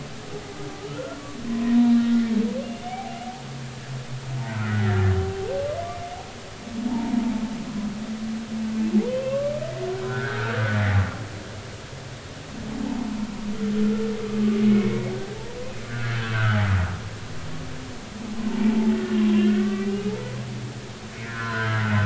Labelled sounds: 0.9	2.0	humpback whale, 0.90 to 1.5 kHz
2.8	3.2	humpback whale, 0.80 to 2.4 kHz
4.5	5.0	humpback whale, 1.2 to 2.0 kHz
6.9	7.3	humpback whale, 0.83 to 1.0 kHz
9.1	9.5	humpback whale, 1.0 to 3.2 kHz
10.3	10.5	humpback whale, 1.2 to 1.5 kHz
11.0	11.5	humpback whale, 1.3 to 1.8 kHz
14.7	15.0	humpback whale, 2.1 to 2.4 kHz
15.8	16.6	humpback whale, 1.2 to 1.8 kHz
18.5	20.3	humpback whale, 0.80 to 2.0 kHz
21.2	22.0	humpback whale, 0.96 to 2.1 kHz

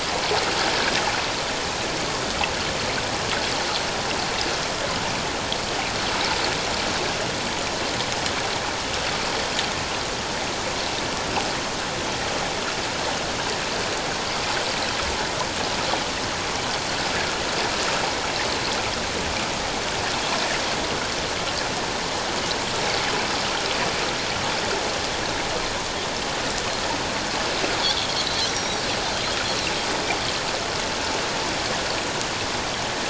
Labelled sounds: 27.8	28.8	Pacific white-sided dolphin, 3.2 to 5.8 kHz

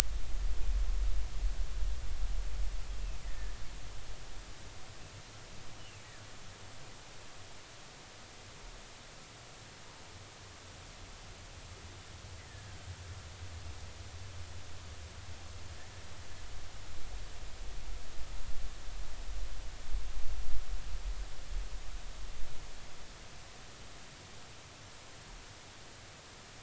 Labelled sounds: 3.2	3.5	humpback whale, 1.7 to 2.0 kHz
12.5	12.8	humpback whale, 1.5 to 1.9 kHz

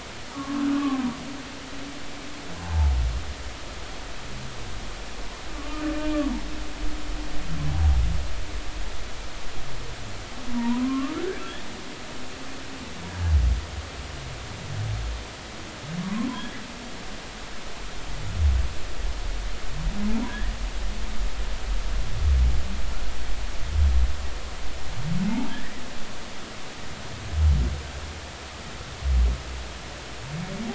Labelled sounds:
0.3	1.1	humpback whale, 0.96 to 1.3 kHz
2.6	2.9	humpback whale, 0.80 to 0.93 kHz
5.5	6.2	humpback whale, 1.1 to 2.5 kHz
10.5	11.2	humpback whale, 0.86 to 1.3 kHz
13.1	13.4	humpback whale, 1.6 to 1.7 kHz
16.0	16.3	humpback whale, 0.93 to 1.2 kHz
20.3	20.5	humpback whale, 1.5 to 1.9 kHz
25.3	25.8	humpback whale, 0.80 to 2.0 kHz

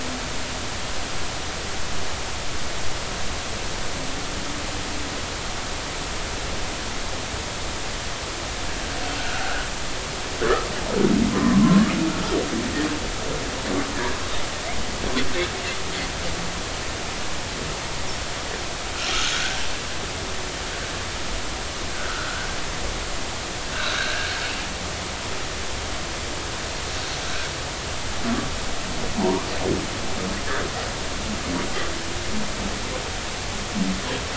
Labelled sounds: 9.2	9.7	humpback whale, 1.3 to 1.7 kHz
11.3	11.9	humpback whale, 0.96 to 1.2 kHz
19.3	19.6	humpback whale, 1.4 to 1.6 kHz
21.9	22.5	humpback whale, 1.2 to 1.7 kHz
24.7	25.3	humpback whale, 1.3 to 1.7 kHz
29.2	29.5	humpback whale, 0.80 to 1.2 kHz

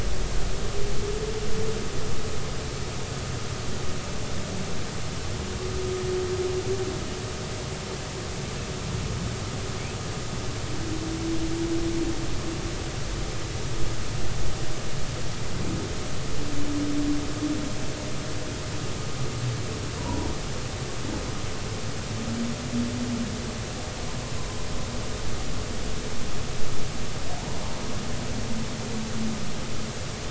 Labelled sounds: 20.0	20.3	humpback whale, 0.86 to 1.0 kHz

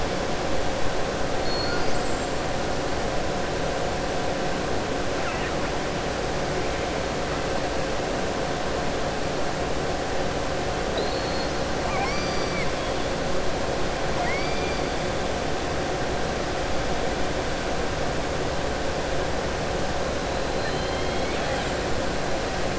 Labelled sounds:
20.6	21.7	killer whale, southern resident, 1.7 to 4.3 kHz

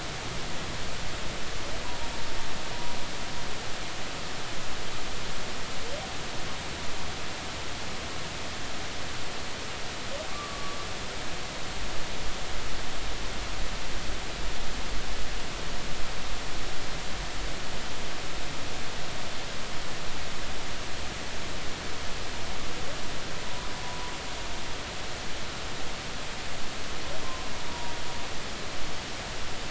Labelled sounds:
10.3	10.8	humpback whale, 1.1 to 1.2 kHz
23.4	23.7	humpback whale, 0.93 to 1.1 kHz
27.6	27.9	humpback whale, 0.90 to 0.99 kHz

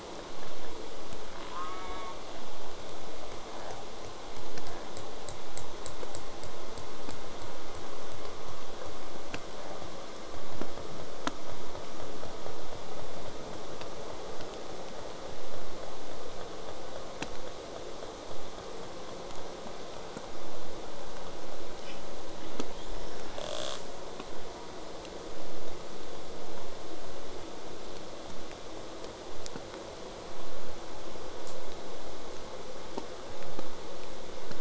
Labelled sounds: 1.5	2.2	killer whale, southern resident, J pod, call S04, 0.50 to 2.4 kHz
23.4	23.8	killer whale, southern resident, J pod, rasp, 0.39 to 8.0 kHz

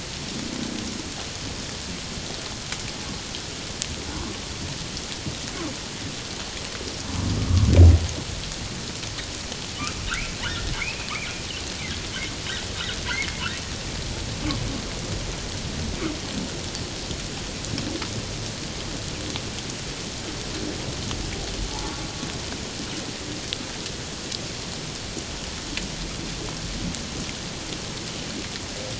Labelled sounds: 10.5	11.1	humpback whale, 1.7 to 2.8 kHz

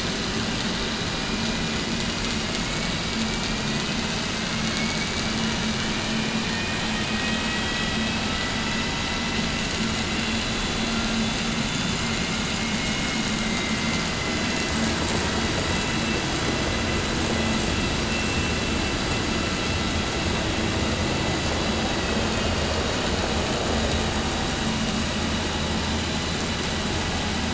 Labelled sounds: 4.5	5.1	vessel noise, 1.7 to 2.9 kHz
12.7	13.1	vessel noise, 1.4 to 3.0 kHz
21.9	22.7	vessel noise, 1.9 to 3.8 kHz

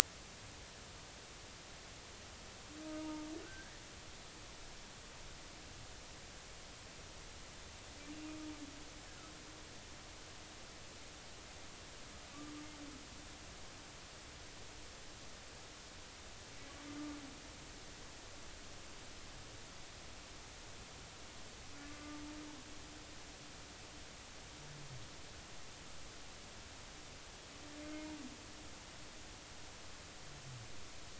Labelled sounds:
3.0	3.7	humpback whale, 0.86 to 1.7 kHz
21.8	22.2	humpback whale, 1.1 to 1.2 kHz

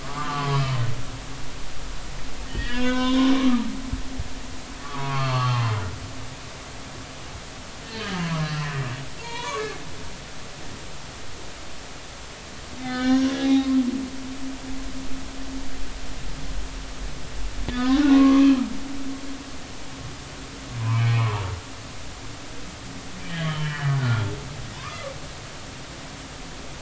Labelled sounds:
0.0	0.8	humpback whale, 0.93 to 3.2 kHz
2.5	3.7	humpback whale, 0.90 to 3.8 kHz
4.8	5.7	humpback whale, 0.80 to 4.5 kHz
7.8	8.5	humpback whale, 0.93 to 1.9 kHz
9.2	9.8	humpback whale, 0.86 to 6.6 kHz
12.8	13.7	humpback whale, 0.80 to 5.9 kHz
17.7	18.7	humpback whale, 0.96 to 3.2 kHz
20.8	21.4	humpback whale, 0.86 to 2.7 kHz
23.2	24.3	humpback whale, 1.3 to 3.2 kHz
24.8	25.1	humpback whale, 0.93 to 1.4 kHz

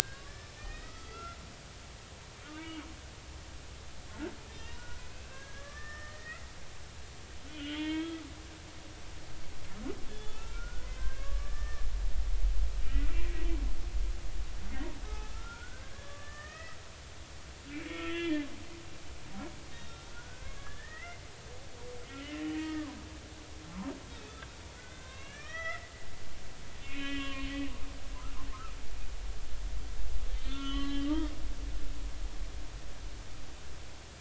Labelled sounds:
0.2	1.4	humpback whale, 1.2 to 5.4 kHz
2.5	2.8	humpback whale, 2.1 to 2.3 kHz
4.5	6.5	humpback whale, 1.1 to 6.1 kHz
7.5	8.2	humpback whale, 0.86 to 3.6 kHz
10.1	11.9	humpback whale, 1.1 to 3.5 kHz
15.0	16.8	humpback whale, 0.80 to 2.7 kHz
17.8	18.5	humpback whale, 1.3 to 3.5 kHz
19.7	21.2	humpback whale, 1.1 to 3.8 kHz
22.1	23.0	humpback whale, 0.93 to 2.1 kHz
24.2	24.5	humpback whale, 3.4 to 3.6 kHz
24.8	27.5	humpback whale, 0.99 to 6.0 kHz
30.3	31.1	humpback whale, 1.1 to 4.0 kHz

